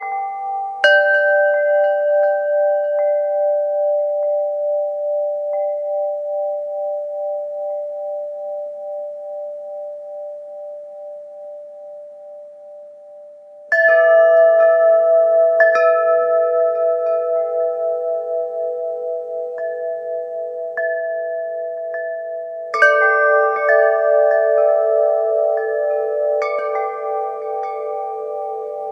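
0.0s Wind chimes are sounding. 0.9s
0.8s Wind chimes fading away. 28.9s

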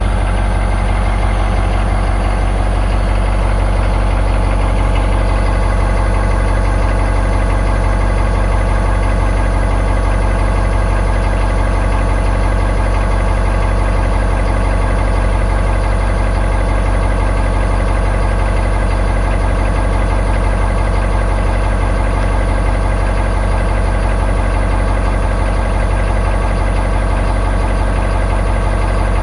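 0.1s A truck's diesel engine runs loudly and constantly. 29.2s

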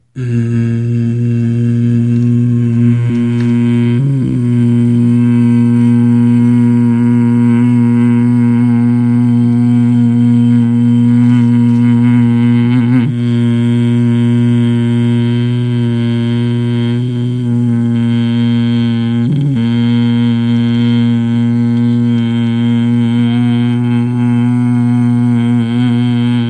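0.2s A man simulates the sound of a washing machine with his mouth, including occasional voice cracks. 26.5s

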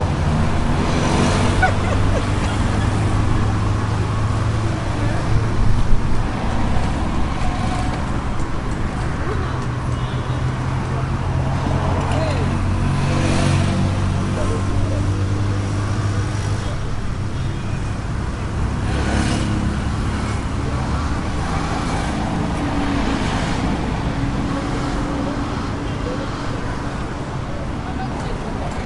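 0.1s Multiple cars driving in traffic. 28.8s

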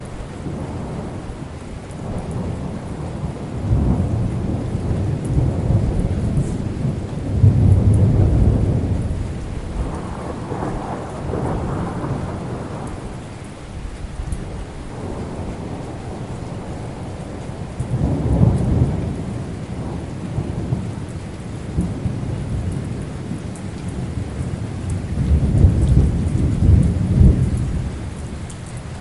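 0.1s Continuous rumble of distant thunder with soft, rhythmic dripping of rainwater. 10.5s
10.5s Loud and frequent lightning strikes echo through the air as rainwater softly drips in the background. 28.9s

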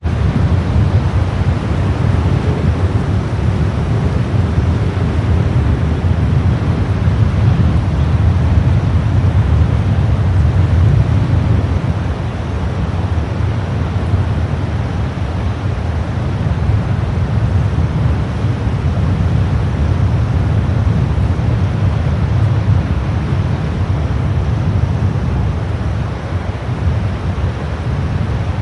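0.0s The wind rustles through the trees with fluctuating intensity and intermittent gusts. 28.6s

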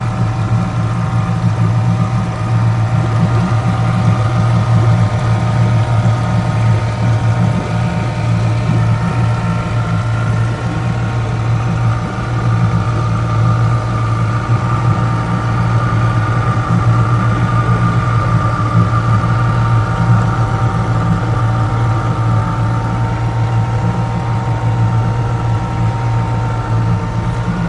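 0.2s An engine is running loudly. 27.7s

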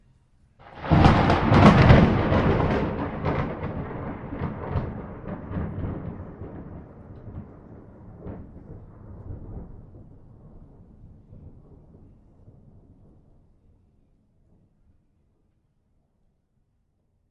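0.7s Thunder rolls loudly and then gradually fades. 7.3s

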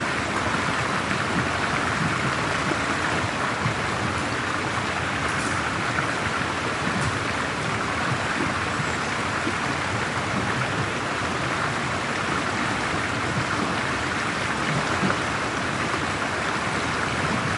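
0.0s A stream flows loudly and steadily nearby. 17.6s

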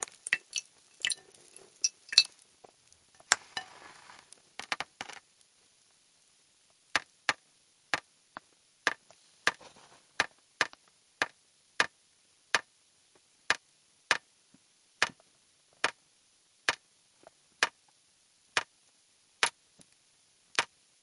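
0.0s Water dripping rhythmically with a soft, repetitive sound. 21.0s

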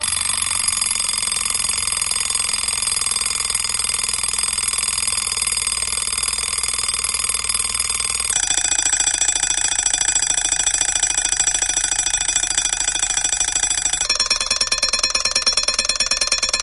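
0.0s An alarm clock rings continuously and loudly with a stepwise decreasing speed. 16.6s

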